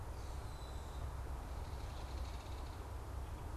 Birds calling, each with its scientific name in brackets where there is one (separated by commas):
Belted Kingfisher (Megaceryle alcyon), Red-winged Blackbird (Agelaius phoeniceus)